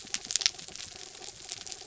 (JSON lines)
{"label": "anthrophony, mechanical", "recorder": "SoundTrap 300"}